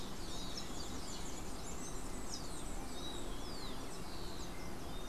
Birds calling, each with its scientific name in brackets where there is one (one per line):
unidentified bird